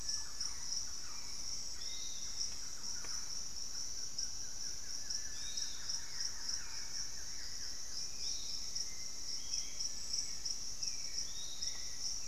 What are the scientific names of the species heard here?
Campylorhynchus turdinus, Turdus hauxwelli, Legatus leucophaius, Xiphorhynchus guttatus